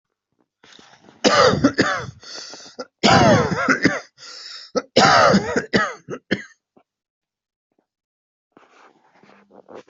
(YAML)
expert_labels:
- quality: good
  cough_type: wet
  dyspnea: false
  wheezing: false
  stridor: false
  choking: false
  congestion: false
  nothing: true
  diagnosis: lower respiratory tract infection
  severity: severe
gender: female
respiratory_condition: false
fever_muscle_pain: false
status: COVID-19